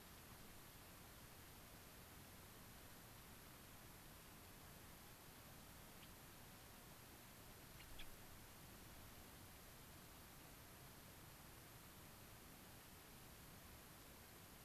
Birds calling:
Gray-crowned Rosy-Finch (Leucosticte tephrocotis)

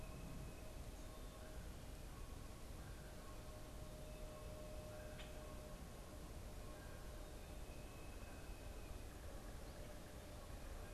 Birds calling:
unidentified bird

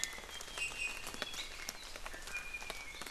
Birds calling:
Iiwi (Drepanis coccinea)

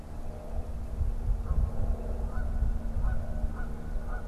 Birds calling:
Canada Goose (Branta canadensis)

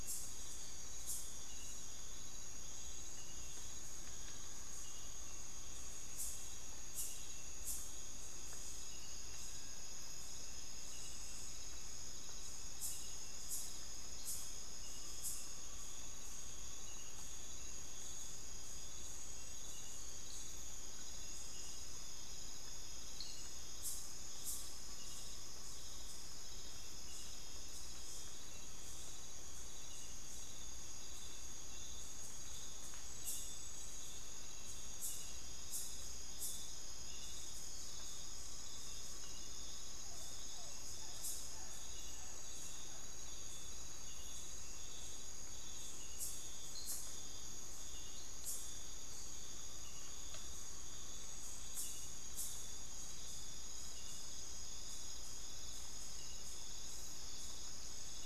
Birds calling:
Amazonian Pygmy-Owl (Glaucidium hardyi)
unidentified bird
Bartlett's Tinamou (Crypturellus bartletti)

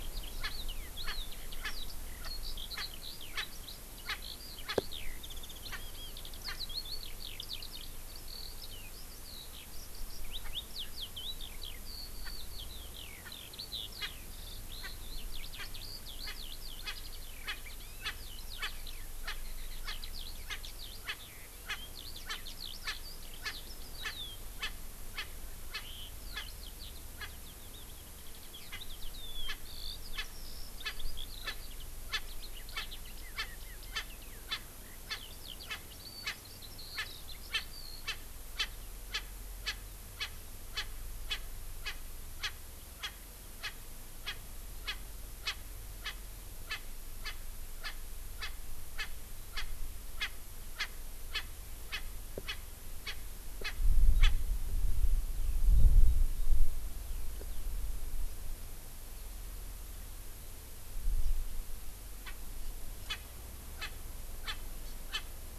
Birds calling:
Eurasian Skylark (Alauda arvensis)
Hawaii Amakihi (Chlorodrepanis virens)
Erckel's Francolin (Pternistis erckelii)

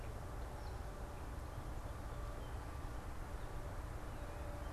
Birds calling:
Gray Catbird (Dumetella carolinensis)

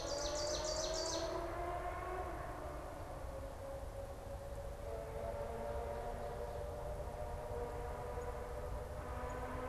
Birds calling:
Ovenbird (Seiurus aurocapilla)
unidentified bird

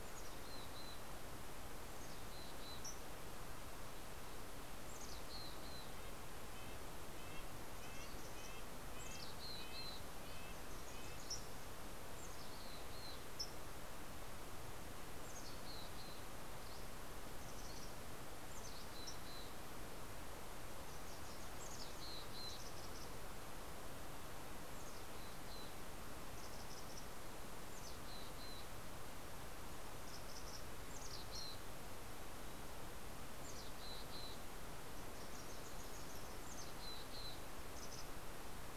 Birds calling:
Red-breasted Nuthatch (Sitta canadensis)
Mountain Chickadee (Poecile gambeli)
Wilson's Warbler (Cardellina pusilla)

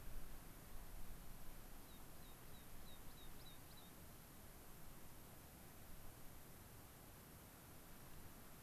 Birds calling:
American Pipit (Anthus rubescens)

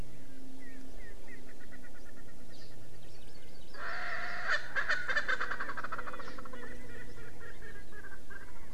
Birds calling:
Hawaii Amakihi (Chlorodrepanis virens)
Erckel's Francolin (Pternistis erckelii)

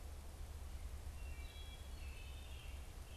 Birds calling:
Wood Thrush (Hylocichla mustelina)
American Robin (Turdus migratorius)

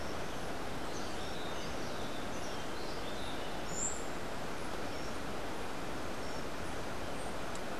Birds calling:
Clay-colored Thrush (Turdus grayi)

